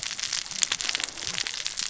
{"label": "biophony, cascading saw", "recorder": "SoundTrap 600 or HydroMoth"}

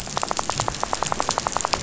{"label": "biophony, rattle", "recorder": "SoundTrap 500"}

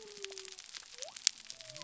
{"label": "biophony", "recorder": "SoundTrap 300"}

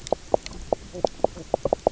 {"label": "biophony, knock croak", "recorder": "SoundTrap 300"}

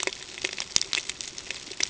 {"label": "ambient", "recorder": "HydroMoth"}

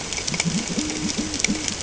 {"label": "ambient", "recorder": "HydroMoth"}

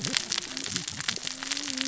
{"label": "biophony, cascading saw", "recorder": "SoundTrap 600 or HydroMoth"}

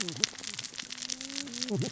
{"label": "biophony, cascading saw", "recorder": "SoundTrap 600 or HydroMoth"}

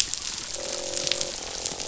{"label": "biophony, croak", "recorder": "SoundTrap 500"}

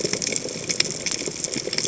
{"label": "biophony", "recorder": "HydroMoth"}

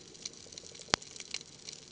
{"label": "ambient", "recorder": "HydroMoth"}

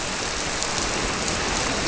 {"label": "biophony", "recorder": "SoundTrap 300"}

